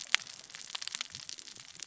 {"label": "biophony, cascading saw", "recorder": "SoundTrap 600 or HydroMoth"}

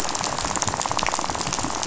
{"label": "biophony, rattle", "recorder": "SoundTrap 500"}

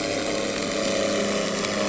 {"label": "anthrophony, boat engine", "recorder": "SoundTrap 300"}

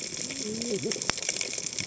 {"label": "biophony, cascading saw", "recorder": "HydroMoth"}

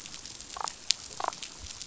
{"label": "biophony, damselfish", "recorder": "SoundTrap 500"}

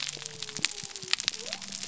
{"label": "biophony", "recorder": "SoundTrap 300"}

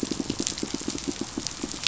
{"label": "biophony, pulse", "recorder": "SoundTrap 500"}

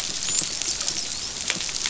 {"label": "biophony, dolphin", "recorder": "SoundTrap 500"}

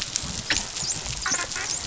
{"label": "biophony, dolphin", "recorder": "SoundTrap 500"}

